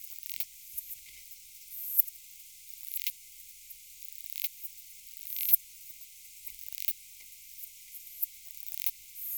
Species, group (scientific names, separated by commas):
Poecilimon gracilis, Orthoptera